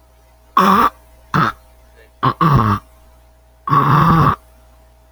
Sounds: Throat clearing